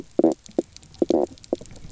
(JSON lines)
{"label": "biophony, knock croak", "recorder": "SoundTrap 300"}